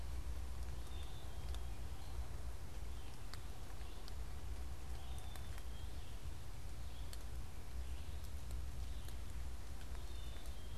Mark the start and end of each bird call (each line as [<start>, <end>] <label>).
[0.00, 10.77] Red-eyed Vireo (Vireo olivaceus)
[0.72, 1.82] Black-capped Chickadee (Poecile atricapillus)
[5.02, 6.02] Black-capped Chickadee (Poecile atricapillus)
[9.82, 10.77] Black-capped Chickadee (Poecile atricapillus)